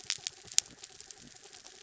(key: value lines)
label: anthrophony, mechanical
recorder: SoundTrap 300